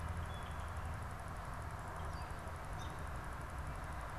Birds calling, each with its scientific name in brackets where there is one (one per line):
American Robin (Turdus migratorius)